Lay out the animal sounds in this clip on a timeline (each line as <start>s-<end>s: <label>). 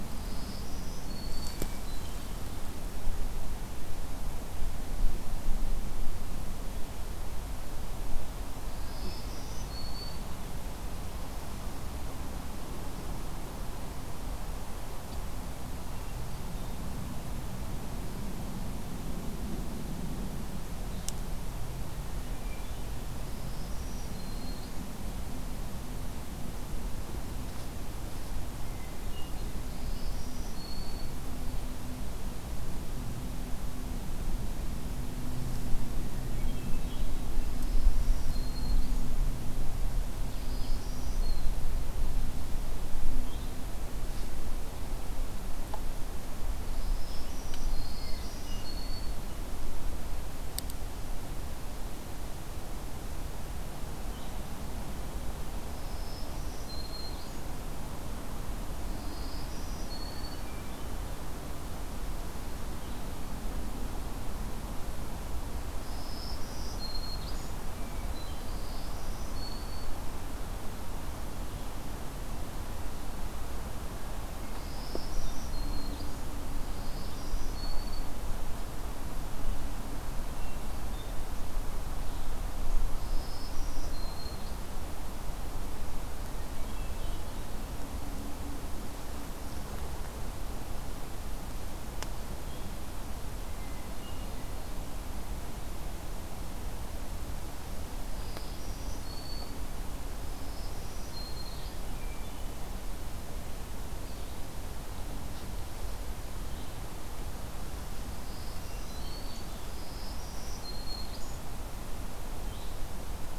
0.0s-1.8s: Black-throated Green Warbler (Setophaga virens)
1.3s-2.4s: Hermit Thrush (Catharus guttatus)
8.7s-10.5s: Black-throated Green Warbler (Setophaga virens)
15.6s-17.0s: Hermit Thrush (Catharus guttatus)
22.2s-23.0s: Hermit Thrush (Catharus guttatus)
23.2s-24.9s: Black-throated Green Warbler (Setophaga virens)
28.4s-29.5s: Hermit Thrush (Catharus guttatus)
29.6s-31.2s: Black-throated Green Warbler (Setophaga virens)
35.9s-37.3s: Hermit Thrush (Catharus guttatus)
37.4s-39.1s: Black-throated Green Warbler (Setophaga virens)
40.0s-41.7s: Black-throated Green Warbler (Setophaga virens)
42.9s-44.5s: Blue-headed Vireo (Vireo solitarius)
46.2s-49.2s: Black-throated Green Warbler (Setophaga virens)
47.7s-49.4s: Hermit Thrush (Catharus guttatus)
53.8s-54.7s: Blue-headed Vireo (Vireo solitarius)
55.5s-57.4s: Black-throated Green Warbler (Setophaga virens)
58.9s-60.5s: Black-throated Green Warbler (Setophaga virens)
60.1s-61.0s: Hermit Thrush (Catharus guttatus)
65.6s-67.2s: Black-throated Green Warbler (Setophaga virens)
67.7s-68.8s: Hermit Thrush (Catharus guttatus)
68.3s-70.0s: Black-throated Green Warbler (Setophaga virens)
74.3s-76.0s: Black-throated Green Warbler (Setophaga virens)
76.5s-78.1s: Black-throated Green Warbler (Setophaga virens)
80.1s-81.2s: Hermit Thrush (Catharus guttatus)
82.7s-84.9s: Black-throated Green Warbler (Setophaga virens)
86.4s-87.5s: Hermit Thrush (Catharus guttatus)
93.5s-94.8s: Hermit Thrush (Catharus guttatus)
97.9s-99.7s: Black-throated Green Warbler (Setophaga virens)
100.1s-101.8s: Black-throated Green Warbler (Setophaga virens)
101.6s-103.1s: Hermit Thrush (Catharus guttatus)
102.7s-113.4s: Blue-headed Vireo (Vireo solitarius)
107.9s-111.1s: Black-throated Green Warbler (Setophaga virens)